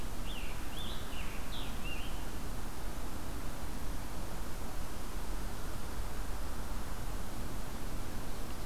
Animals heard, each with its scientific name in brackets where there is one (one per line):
Scarlet Tanager (Piranga olivacea)